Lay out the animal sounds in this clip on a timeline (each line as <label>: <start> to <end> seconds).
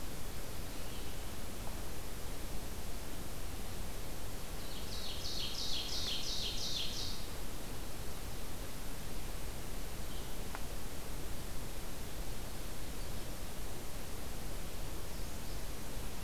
Ovenbird (Seiurus aurocapilla): 4.5 to 7.3 seconds